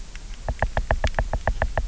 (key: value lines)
label: biophony, knock
recorder: SoundTrap 300